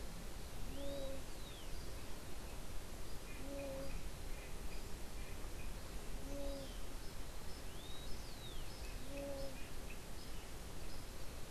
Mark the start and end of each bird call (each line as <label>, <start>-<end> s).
unidentified bird, 0.0-9.8 s
Rufous-collared Sparrow (Zonotrichia capensis), 0.7-2.1 s
Rufous-collared Sparrow (Zonotrichia capensis), 7.5-9.0 s